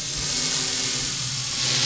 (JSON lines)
{"label": "anthrophony, boat engine", "recorder": "SoundTrap 500"}